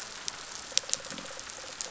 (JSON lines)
{"label": "biophony", "recorder": "SoundTrap 500"}